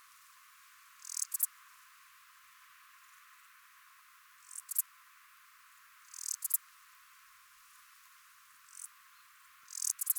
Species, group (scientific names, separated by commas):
Lluciapomaresius stalii, Orthoptera